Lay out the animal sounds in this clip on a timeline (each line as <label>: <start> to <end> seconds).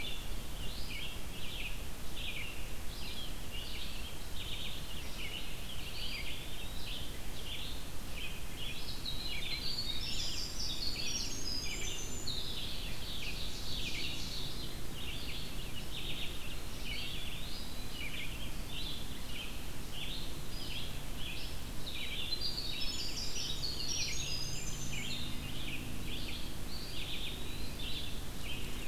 Red-eyed Vireo (Vireo olivaceus): 0.0 to 28.9 seconds
Eastern Wood-Pewee (Contopus virens): 5.8 to 7.3 seconds
Winter Wren (Troglodytes hiemalis): 8.2 to 12.5 seconds
Ovenbird (Seiurus aurocapilla): 12.9 to 15.0 seconds
Eastern Wood-Pewee (Contopus virens): 16.8 to 18.1 seconds
Winter Wren (Troglodytes hiemalis): 21.6 to 25.4 seconds
Eastern Wood-Pewee (Contopus virens): 26.6 to 27.8 seconds